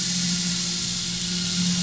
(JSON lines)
{"label": "anthrophony, boat engine", "recorder": "SoundTrap 500"}